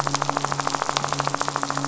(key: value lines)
label: anthrophony, boat engine
recorder: SoundTrap 500